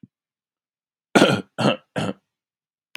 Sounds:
Cough